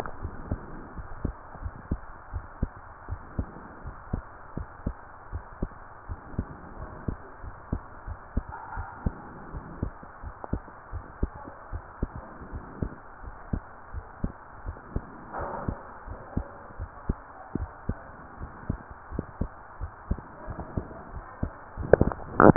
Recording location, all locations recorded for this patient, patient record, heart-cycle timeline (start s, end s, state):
pulmonary valve (PV)
aortic valve (AV)+pulmonary valve (PV)+tricuspid valve (TV)+mitral valve (MV)
#Age: Child
#Sex: Female
#Height: 148.0 cm
#Weight: 61.0 kg
#Pregnancy status: False
#Murmur: Absent
#Murmur locations: nan
#Most audible location: nan
#Systolic murmur timing: nan
#Systolic murmur shape: nan
#Systolic murmur grading: nan
#Systolic murmur pitch: nan
#Systolic murmur quality: nan
#Diastolic murmur timing: nan
#Diastolic murmur shape: nan
#Diastolic murmur grading: nan
#Diastolic murmur pitch: nan
#Diastolic murmur quality: nan
#Outcome: Normal
#Campaign: 2015 screening campaign
0.00	0.18	diastole
0.18	0.31	S1
0.31	0.44	systole
0.44	0.60	S2
0.60	0.94	diastole
0.94	1.06	S1
1.06	1.22	systole
1.22	1.36	S2
1.36	1.60	diastole
1.60	1.74	S1
1.74	1.90	systole
1.90	2.02	S2
2.02	2.34	diastole
2.34	2.46	S1
2.46	2.58	systole
2.58	2.72	S2
2.72	3.06	diastole
3.06	3.20	S1
3.20	3.36	systole
3.36	3.50	S2
3.50	3.84	diastole
3.84	3.96	S1
3.96	4.10	systole
4.10	4.26	S2
4.26	4.56	diastole
4.56	4.68	S1
4.68	4.82	systole
4.82	4.96	S2
4.96	5.30	diastole
5.30	5.44	S1
5.44	5.60	systole
5.60	5.72	S2
5.72	6.08	diastole
6.08	6.20	S1
6.20	6.36	systole
6.36	6.48	S2
6.48	6.78	diastole
6.78	6.90	S1
6.90	7.06	systole
7.06	7.16	S2
7.16	7.42	diastole
7.42	7.54	S1
7.54	7.68	systole
7.68	7.80	S2
7.80	8.06	diastole
8.06	8.18	S1
8.18	8.36	systole
8.36	8.50	S2
8.50	8.76	diastole
8.76	8.88	S1
8.88	9.02	systole
9.02	9.18	S2
9.18	9.50	diastole
9.50	9.64	S1
9.64	9.80	systole
9.80	9.94	S2
9.94	10.24	diastole
10.24	10.34	S1
10.34	10.52	systole
10.52	10.62	S2
10.62	10.92	diastole
10.92	11.04	S1
11.04	11.22	systole
11.22	11.36	S2
11.36	11.70	diastole
11.70	11.82	S1
11.82	11.98	systole
11.98	12.14	S2
12.14	12.50	diastole
12.50	12.64	S1
12.64	12.80	systole
12.80	12.92	S2
12.92	13.24	diastole
13.24	13.34	S1
13.34	13.52	systole
13.52	13.66	S2
13.66	13.94	diastole
13.94	14.06	S1
14.06	14.22	systole
14.22	14.34	S2
14.34	14.64	diastole
14.64	14.78	S1
14.78	14.94	systole
14.94	15.08	S2
15.08	15.38	diastole
15.38	15.50	S1
15.50	15.66	systole
15.66	15.78	S2
15.78	16.04	diastole
16.04	16.18	S1
16.18	16.32	systole
16.32	16.46	S2
16.46	16.78	diastole
16.78	16.90	S1
16.90	17.06	systole
17.06	17.22	S2
17.22	17.56	diastole
17.56	17.70	S1
17.70	17.86	systole
17.86	17.98	S2
17.98	18.38	diastole
18.38	18.52	S1
18.52	18.68	systole
18.68	18.80	S2
18.80	19.12	diastole
19.12	19.26	S1
19.26	19.37	systole
19.37	19.52	S2
19.52	19.77	diastole
19.77	19.92	S1
19.92	20.08	systole
20.08	20.20	S2
20.20	20.48	diastole
20.48	20.60	S1
20.60	20.74	systole
20.74	20.84	S2
20.84	21.12	diastole
21.12	21.24	S1
21.24	21.40	systole
21.40	21.54	S2
21.54	21.78	diastole